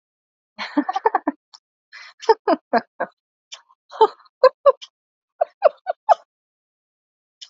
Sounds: Laughter